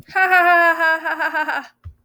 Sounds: Laughter